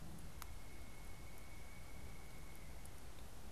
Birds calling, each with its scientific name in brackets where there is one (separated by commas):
Pileated Woodpecker (Dryocopus pileatus)